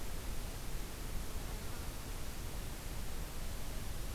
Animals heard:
forest ambience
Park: Hubbard Brook Experimental Forest